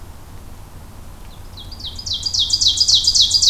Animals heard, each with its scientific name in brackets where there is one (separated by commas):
Ovenbird (Seiurus aurocapilla)